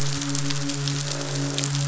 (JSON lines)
{"label": "biophony, croak", "recorder": "SoundTrap 500"}
{"label": "biophony, midshipman", "recorder": "SoundTrap 500"}